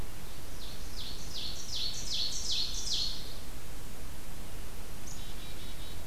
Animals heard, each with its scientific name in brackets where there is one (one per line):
Black-capped Chickadee (Poecile atricapillus)
Ovenbird (Seiurus aurocapilla)